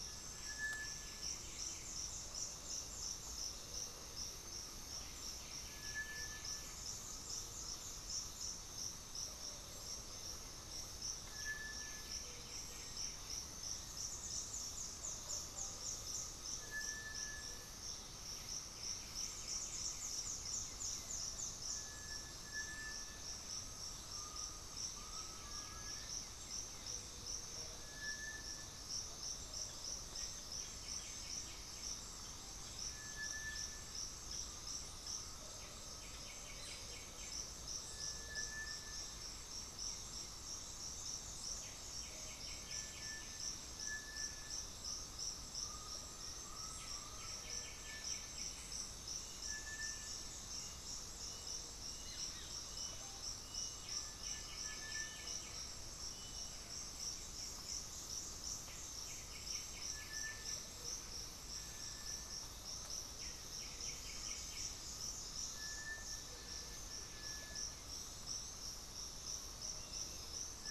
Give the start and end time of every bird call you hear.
[0.00, 13.52] White-winged Becard (Pachyramphus polychopterus)
[0.00, 70.71] Gray-fronted Dove (Leptotila rufaxilla)
[0.02, 23.62] Cinereous Tinamou (Crypturellus cinereus)
[5.82, 8.22] Undulated Tinamou (Crypturellus undulatus)
[18.42, 37.82] White-winged Becard (Pachyramphus polychopterus)
[24.02, 26.12] Undulated Tinamou (Crypturellus undulatus)
[25.22, 26.42] Little Tinamou (Crypturellus soui)
[27.62, 70.71] Cinereous Tinamou (Crypturellus cinereus)
[29.82, 32.12] Black-faced Antthrush (Formicarius analis)
[33.92, 36.62] Undulated Tinamou (Crypturellus undulatus)
[41.32, 43.52] White-winged Becard (Pachyramphus polychopterus)
[45.52, 47.52] Undulated Tinamou (Crypturellus undulatus)
[45.82, 48.82] Black-faced Antthrush (Formicarius analis)
[46.72, 48.92] White-winged Becard (Pachyramphus polychopterus)
[48.52, 57.02] Bluish-fronted Jacamar (Galbula cyanescens)
[52.72, 53.42] Russet-backed Oropendola (Psarocolius angustifrons)
[53.72, 56.02] Undulated Tinamou (Crypturellus undulatus)
[55.52, 57.92] Blue-gray Saltator (Saltator coerulescens)
[58.22, 65.12] White-winged Becard (Pachyramphus polychopterus)

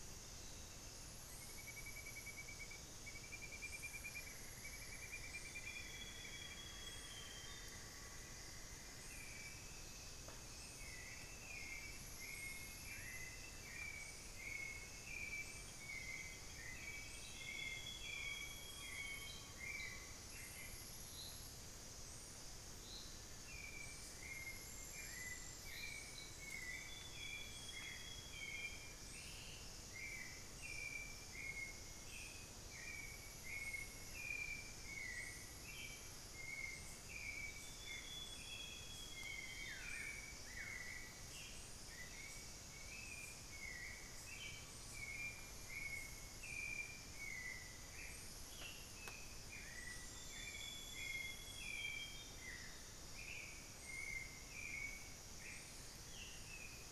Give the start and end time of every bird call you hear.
[0.00, 0.70] Piratic Flycatcher (Legatus leucophaius)
[3.80, 9.70] Cinnamon-throated Woodcreeper (Dendrexetastes rufigula)
[5.30, 7.70] Amazonian Grosbeak (Cyanoloxia rothschildii)
[6.40, 8.60] Amazonian Pygmy-Owl (Glaucidium hardyi)
[17.00, 19.60] Amazonian Grosbeak (Cyanoloxia rothschildii)
[17.90, 20.50] Amazonian Pygmy-Owl (Glaucidium hardyi)
[26.50, 29.00] Amazonian Grosbeak (Cyanoloxia rothschildii)
[37.40, 40.10] Amazonian Grosbeak (Cyanoloxia rothschildii)
[39.50, 41.00] Buff-throated Woodcreeper (Xiphorhynchus guttatus)
[48.20, 49.70] Ringed Antpipit (Corythopis torquatus)
[50.10, 52.70] Amazonian Grosbeak (Cyanoloxia rothschildii)
[55.90, 56.90] Ringed Antpipit (Corythopis torquatus)

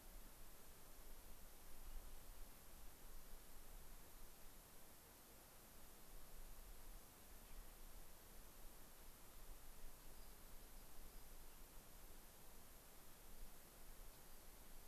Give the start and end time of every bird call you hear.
[7.37, 7.87] Gray-crowned Rosy-Finch (Leucosticte tephrocotis)
[10.07, 11.57] Rock Wren (Salpinctes obsoletus)
[14.07, 14.47] Rock Wren (Salpinctes obsoletus)

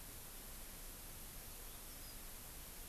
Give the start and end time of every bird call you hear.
[1.34, 2.25] Yellow-fronted Canary (Crithagra mozambica)

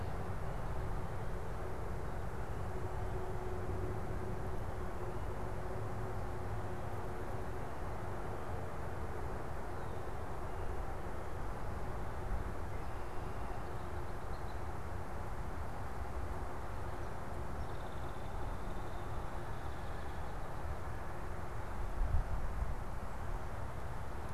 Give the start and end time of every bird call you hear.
[14.10, 14.70] Red-winged Blackbird (Agelaius phoeniceus)
[17.40, 20.30] Hairy Woodpecker (Dryobates villosus)

